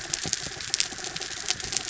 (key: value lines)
label: anthrophony, mechanical
recorder: SoundTrap 300